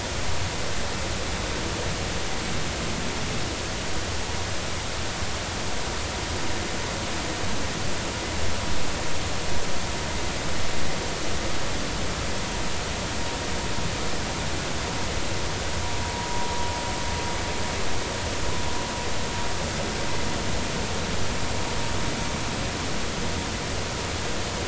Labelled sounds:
16.0	16.3	vessel noise, 0.90 to 1.0 kHz

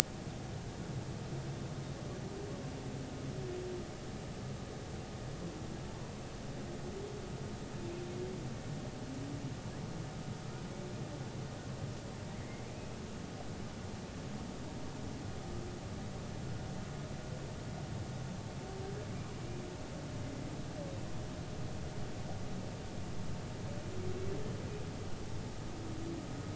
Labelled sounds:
12.4	12.6	humpback whale, 2.0 to 2.2 kHz

